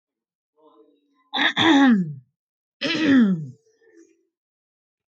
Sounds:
Throat clearing